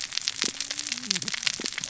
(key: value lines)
label: biophony, cascading saw
recorder: SoundTrap 600 or HydroMoth